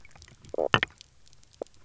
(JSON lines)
{"label": "biophony, knock croak", "recorder": "SoundTrap 300"}